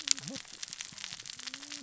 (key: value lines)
label: biophony, cascading saw
recorder: SoundTrap 600 or HydroMoth